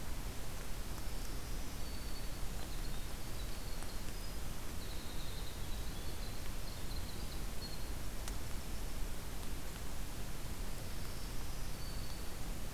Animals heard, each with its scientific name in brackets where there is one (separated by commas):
Black-throated Green Warbler (Setophaga virens), Winter Wren (Troglodytes hiemalis)